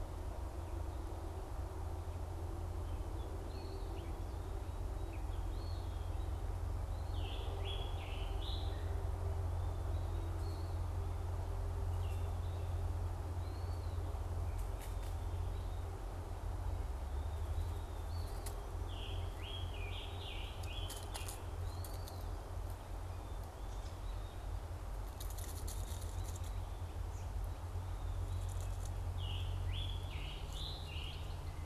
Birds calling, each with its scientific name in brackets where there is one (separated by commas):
Scarlet Tanager (Piranga olivacea), Eastern Wood-Pewee (Contopus virens)